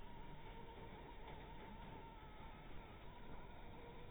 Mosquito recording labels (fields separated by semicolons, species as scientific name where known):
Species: Anopheles maculatus; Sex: female; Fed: blood-fed; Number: one; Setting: cup